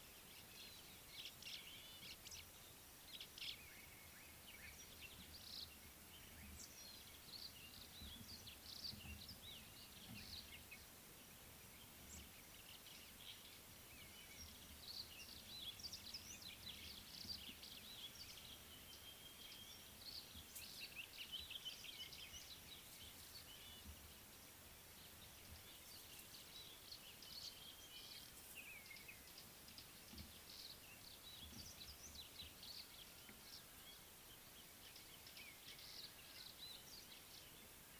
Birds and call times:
White-browed Sparrow-Weaver (Plocepasser mahali): 1.4s
Brimstone Canary (Crithagra sulphurata): 5.5s, 20.7s

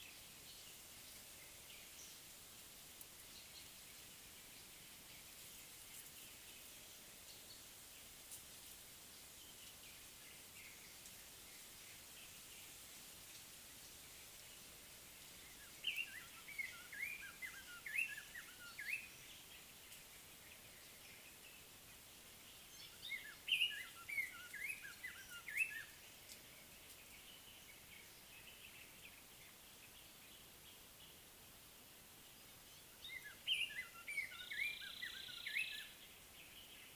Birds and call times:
Cape Robin-Chat (Cossypha caffra): 24.6s
Gray Apalis (Apalis cinerea): 35.2s

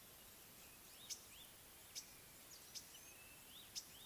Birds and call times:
Green-winged Pytilia (Pytilia melba): 1.2s

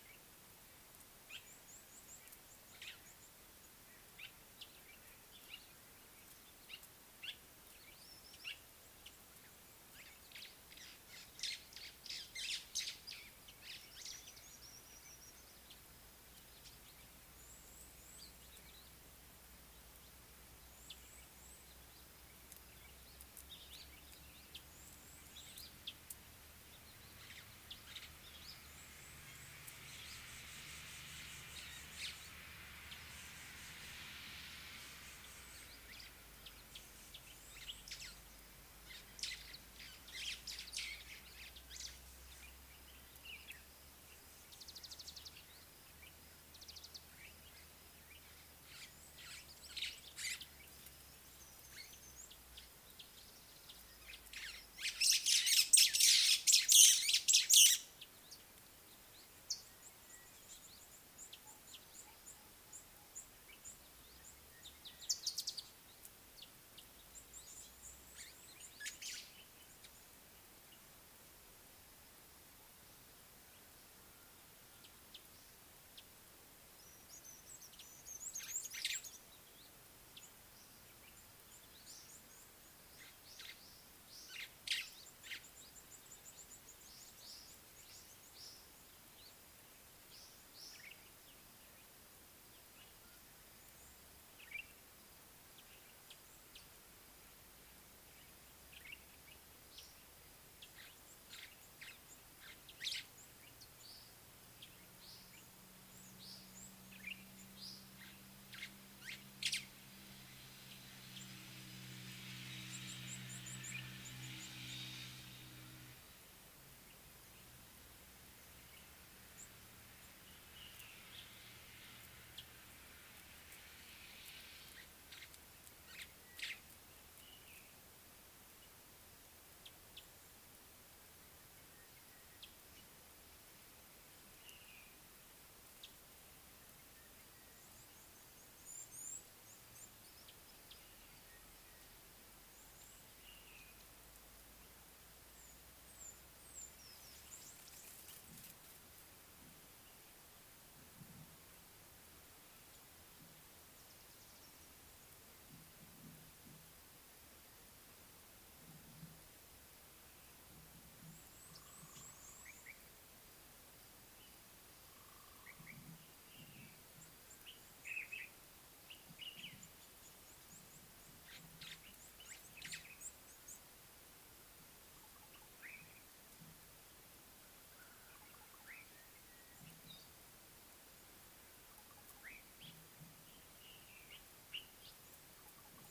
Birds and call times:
Red-cheeked Cordonbleu (Uraeginthus bengalus): 1.9s, 21.1s, 62.2s, 86.2s, 113.1s, 119.4s, 138.9s, 146.0s, 161.8s
Common Bulbul (Pycnonotus barbatus): 7.2s, 94.5s, 168.0s, 184.5s
White-browed Sparrow-Weaver (Plocepasser mahali): 12.4s, 40.3s, 49.7s, 56.3s, 69.0s, 78.8s, 102.9s, 109.5s, 126.4s, 171.7s
Scarlet-chested Sunbird (Chalcomitra senegalensis): 23.6s, 59.5s
Mariqua Sunbird (Cinnyris mariquensis): 44.7s
Sulphur-breasted Bushshrike (Telophorus sulfureopectus): 60.1s, 64.5s
Slate-colored Boubou (Laniarius funebris): 165.5s, 175.1s

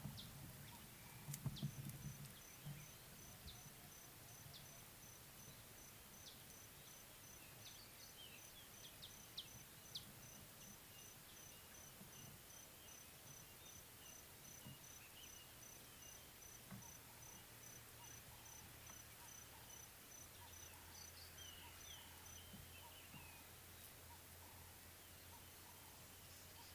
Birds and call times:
Scarlet-chested Sunbird (Chalcomitra senegalensis): 0.2s
Ring-necked Dove (Streptopelia capicola): 24.5s

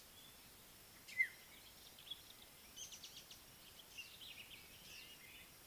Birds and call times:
African Black-headed Oriole (Oriolus larvatus): 1.2s
Speckled Mousebird (Colius striatus): 3.1s

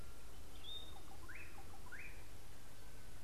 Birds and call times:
Slate-colored Boubou (Laniarius funebris): 1.4s

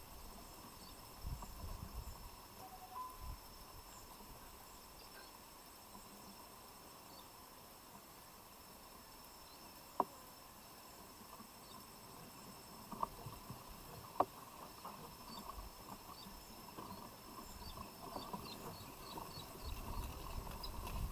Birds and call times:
Tropical Boubou (Laniarius major): 3.0s
Cinnamon-chested Bee-eater (Merops oreobates): 19.0s

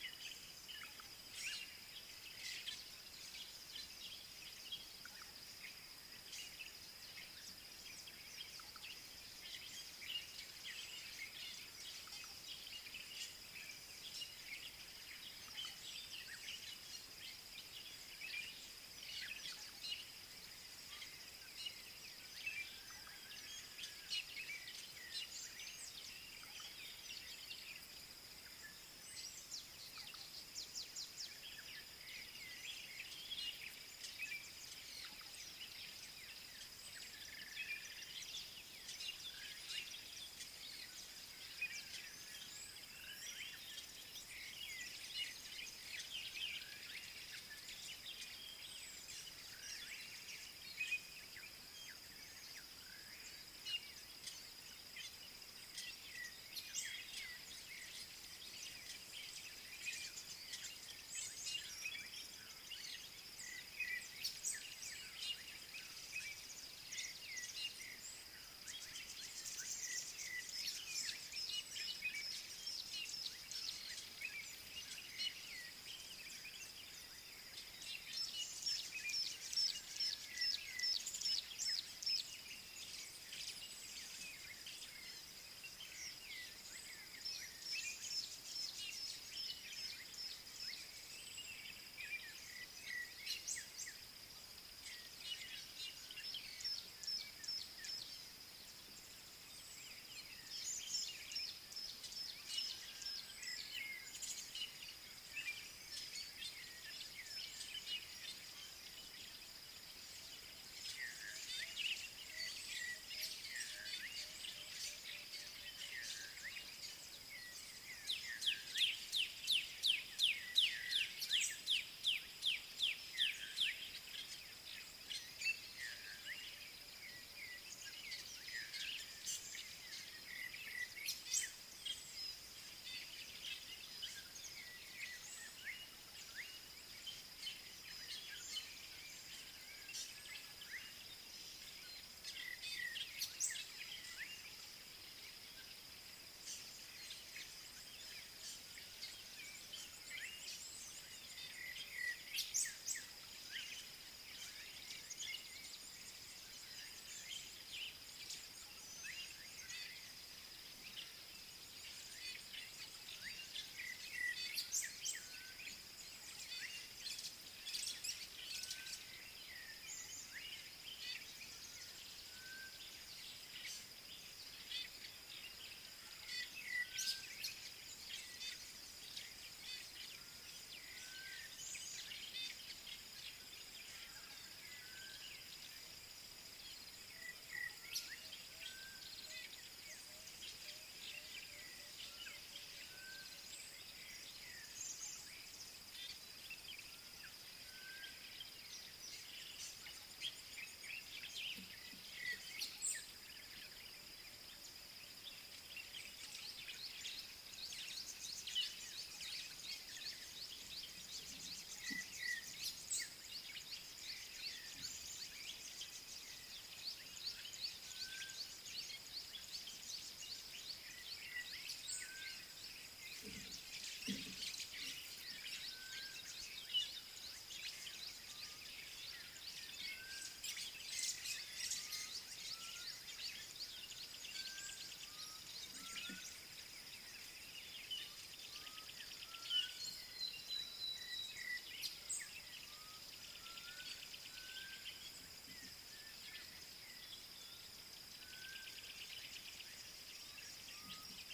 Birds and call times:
African Bare-eyed Thrush (Turdus tephronotus): 37.6s, 176.7s, 187.3s
Tawny-flanked Prinia (Prinia subflava): 97.2s
Black-backed Puffback (Dryoscopus cubla): 120.0s, 122.2s
Gray-backed Camaroptera (Camaroptera brevicaudata): 133.0s
Red-cheeked Cordonbleu (Uraeginthus bengalus): 200.2s
White-browed Sparrow-Weaver (Plocepasser mahali): 231.1s

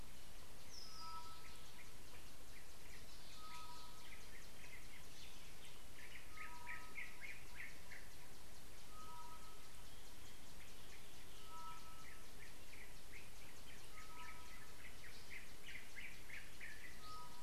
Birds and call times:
Tropical Boubou (Laniarius major): 1.2s
Yellow-whiskered Greenbul (Eurillas latirostris): 16.1s

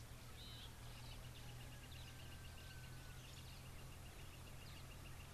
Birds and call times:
Brubru (Nilaus afer): 4.0s

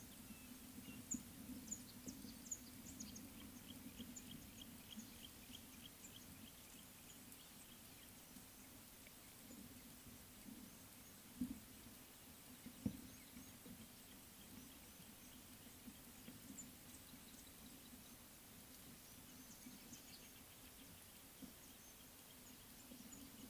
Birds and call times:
Mouse-colored Penduline-Tit (Anthoscopus musculus): 1.1s

